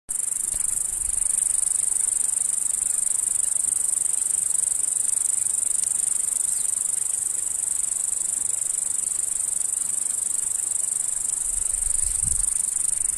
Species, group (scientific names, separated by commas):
Okanagana bella, Cicadidae